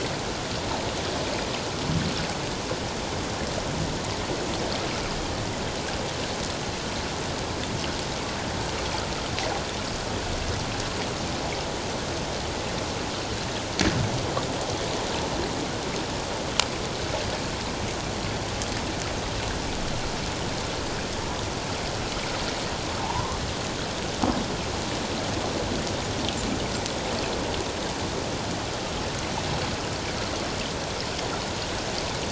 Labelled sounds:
23.0	23.4	humpback whale, 0.78 to 1.2 kHz

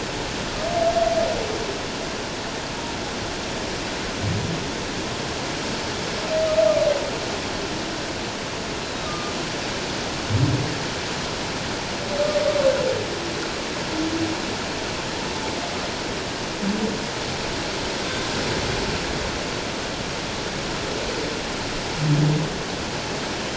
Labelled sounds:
8.8	9.3	humpback whale, 1.2 to 4.1 kHz

